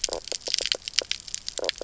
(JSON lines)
{"label": "biophony, knock croak", "recorder": "SoundTrap 300"}